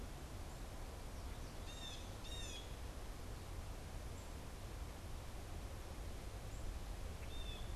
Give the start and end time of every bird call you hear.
0.0s-2.8s: Blue Jay (Cyanocitta cristata)
3.9s-7.8s: Black-capped Chickadee (Poecile atricapillus)
7.0s-7.8s: Blue Jay (Cyanocitta cristata)

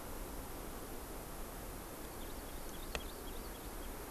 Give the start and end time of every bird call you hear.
1.9s-4.0s: Hawaii Amakihi (Chlorodrepanis virens)

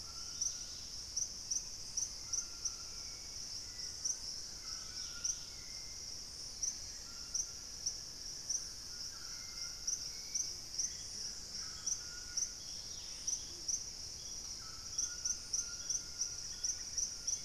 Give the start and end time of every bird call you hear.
0.0s-5.7s: Dusky-capped Greenlet (Pachysylvia hypoxantha)
0.0s-17.4s: White-throated Toucan (Ramphastos tucanus)
1.5s-3.3s: Black-capped Becard (Pachyramphus marginatus)
2.6s-17.4s: Hauxwell's Thrush (Turdus hauxwelli)
4.0s-4.6s: Purple-throated Fruitcrow (Querula purpurata)
7.2s-10.0s: unidentified bird
10.3s-11.5s: unidentified bird
11.3s-13.5s: Gray Antbird (Cercomacra cinerascens)
12.4s-13.6s: Dusky-capped Greenlet (Pachysylvia hypoxantha)
14.8s-17.4s: Long-winged Antwren (Myrmotherula longipennis)
16.3s-17.3s: unidentified bird

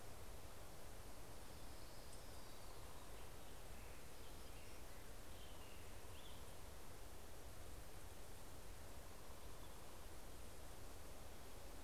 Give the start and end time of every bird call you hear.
0.1s-3.5s: Orange-crowned Warbler (Leiothlypis celata)

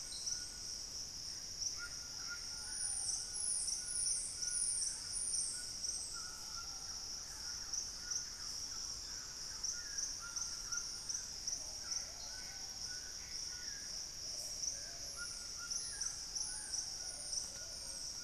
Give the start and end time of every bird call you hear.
0.0s-18.2s: White-throated Toucan (Ramphastos tucanus)
1.2s-3.2s: Gray Antbird (Cercomacra cinerascens)
2.0s-3.8s: Plumbeous Pigeon (Patagioenas plumbea)
6.3s-10.9s: Thrush-like Wren (Campylorhynchus turdinus)
11.2s-12.9s: Plumbeous Pigeon (Patagioenas plumbea)
11.5s-14.0s: Gray Antbird (Cercomacra cinerascens)
14.0s-15.3s: Plumbeous Pigeon (Patagioenas plumbea)
15.6s-18.2s: Gray Antbird (Cercomacra cinerascens)

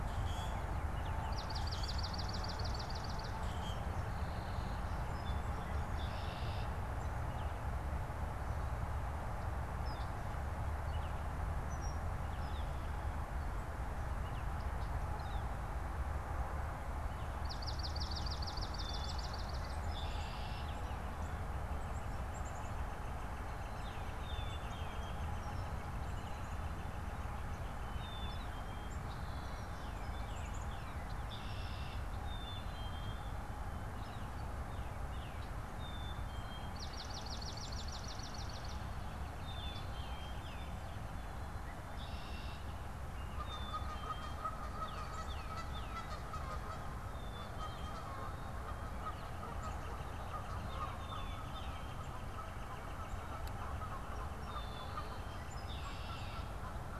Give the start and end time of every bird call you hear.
0.0s-0.7s: Common Grackle (Quiscalus quiscula)
0.8s-1.1s: Baltimore Oriole (Icterus galbula)
1.2s-3.4s: Swamp Sparrow (Melospiza georgiana)
3.3s-3.9s: Common Grackle (Quiscalus quiscula)
3.8s-5.7s: Song Sparrow (Melospiza melodia)
5.7s-6.8s: Red-winged Blackbird (Agelaius phoeniceus)
7.2s-7.6s: Baltimore Oriole (Icterus galbula)
9.6s-10.3s: Northern Flicker (Colaptes auratus)
10.8s-14.6s: Baltimore Oriole (Icterus galbula)
12.2s-12.8s: Northern Flicker (Colaptes auratus)
14.5s-14.7s: Yellow-rumped Warbler (Setophaga coronata)
15.0s-15.6s: Northern Flicker (Colaptes auratus)
17.2s-19.8s: Swamp Sparrow (Melospiza georgiana)
19.6s-20.9s: Red-winged Blackbird (Agelaius phoeniceus)
21.4s-28.7s: Northern Flicker (Colaptes auratus)
21.6s-26.1s: Black-capped Chickadee (Poecile atricapillus)
23.6s-25.0s: Tufted Titmouse (Baeolophus bicolor)
28.9s-29.8s: Red-winged Blackbird (Agelaius phoeniceus)
29.4s-31.2s: Tufted Titmouse (Baeolophus bicolor)
30.1s-31.0s: Black-capped Chickadee (Poecile atricapillus)
30.9s-32.2s: Red-winged Blackbird (Agelaius phoeniceus)
32.1s-33.3s: Black-capped Chickadee (Poecile atricapillus)
33.9s-34.3s: Northern Flicker (Colaptes auratus)
34.5s-35.7s: Tufted Titmouse (Baeolophus bicolor)
35.8s-37.6s: White-breasted Nuthatch (Sitta carolinensis)
36.6s-39.0s: Swamp Sparrow (Melospiza georgiana)
39.3s-40.8s: Black-capped Chickadee (Poecile atricapillus)
39.3s-40.8s: Tufted Titmouse (Baeolophus bicolor)
41.7s-42.6s: Red-winged Blackbird (Agelaius phoeniceus)
43.1s-57.0s: Canada Goose (Branta canadensis)
43.3s-44.5s: Black-capped Chickadee (Poecile atricapillus)
44.6s-46.1s: Tufted Titmouse (Baeolophus bicolor)
47.0s-48.1s: Black-capped Chickadee (Poecile atricapillus)
48.9s-55.2s: Northern Flicker (Colaptes auratus)
50.6s-52.0s: Black-capped Chickadee (Poecile atricapillus)
53.7s-55.7s: Song Sparrow (Melospiza melodia)
54.4s-55.6s: Black-capped Chickadee (Poecile atricapillus)
55.4s-56.6s: Red-winged Blackbird (Agelaius phoeniceus)
55.5s-56.4s: Tufted Titmouse (Baeolophus bicolor)

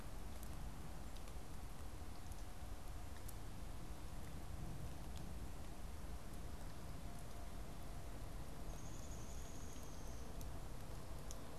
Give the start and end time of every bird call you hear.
8.3s-10.2s: Downy Woodpecker (Dryobates pubescens)

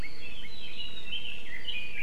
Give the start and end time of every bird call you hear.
0.0s-2.0s: Red-billed Leiothrix (Leiothrix lutea)

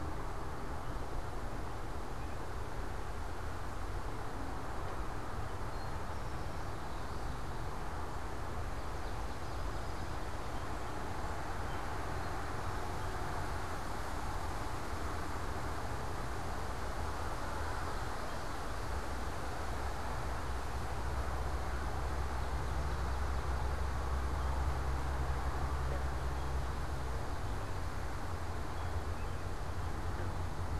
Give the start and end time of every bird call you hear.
5.2s-6.3s: Eastern Towhee (Pipilo erythrophthalmus)
6.6s-7.8s: Common Yellowthroat (Geothlypis trichas)
8.7s-10.8s: Swamp Sparrow (Melospiza georgiana)
22.2s-24.2s: Swamp Sparrow (Melospiza georgiana)
28.6s-30.3s: American Robin (Turdus migratorius)

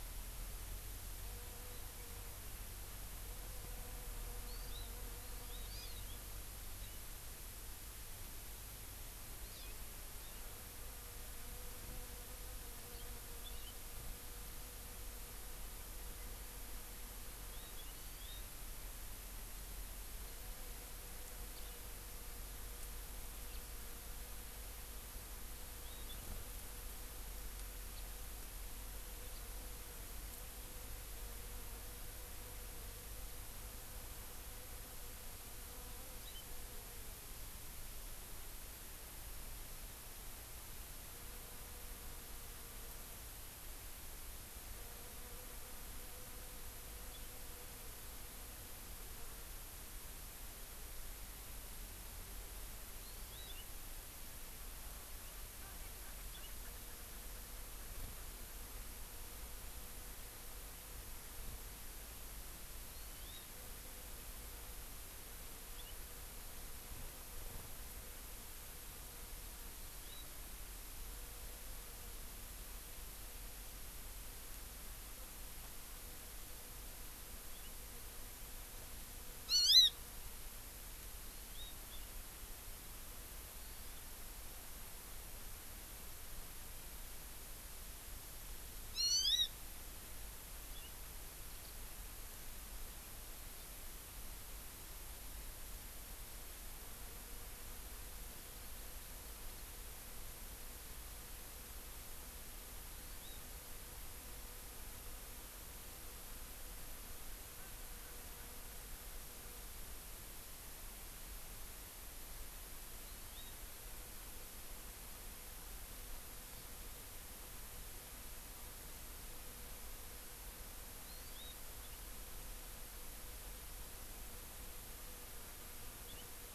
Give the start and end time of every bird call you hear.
4.5s-5.0s: Hawaii Amakihi (Chlorodrepanis virens)
5.2s-6.2s: Hawaii Amakihi (Chlorodrepanis virens)
9.4s-9.8s: Hawaii Amakihi (Chlorodrepanis virens)
17.4s-18.4s: Hawaii Amakihi (Chlorodrepanis virens)
21.6s-21.8s: House Finch (Haemorhous mexicanus)
23.4s-23.6s: House Finch (Haemorhous mexicanus)
27.9s-28.1s: House Finch (Haemorhous mexicanus)
29.4s-29.4s: House Finch (Haemorhous mexicanus)
53.0s-53.5s: Hawaii Amakihi (Chlorodrepanis virens)
62.9s-63.5s: Hawaii Amakihi (Chlorodrepanis virens)
79.5s-80.0s: Hawaii Amakihi (Chlorodrepanis virens)
81.2s-81.8s: Hawaii Amakihi (Chlorodrepanis virens)
89.0s-89.5s: Hawaii Amakihi (Chlorodrepanis virens)
103.0s-103.3s: Hawaii Amakihi (Chlorodrepanis virens)
113.0s-113.5s: Hawaii Amakihi (Chlorodrepanis virens)
116.5s-116.7s: Hawaii Amakihi (Chlorodrepanis virens)
121.0s-121.5s: Hawaii Amakihi (Chlorodrepanis virens)

